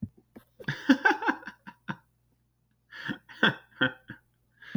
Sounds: Laughter